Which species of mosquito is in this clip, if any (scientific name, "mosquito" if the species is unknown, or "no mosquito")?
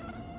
Aedes aegypti